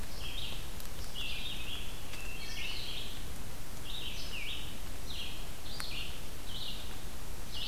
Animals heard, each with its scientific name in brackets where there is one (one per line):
Wood Thrush (Hylocichla mustelina)
Red-eyed Vireo (Vireo olivaceus)